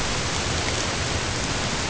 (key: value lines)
label: ambient
recorder: HydroMoth